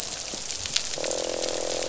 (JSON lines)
{"label": "biophony, croak", "recorder": "SoundTrap 500"}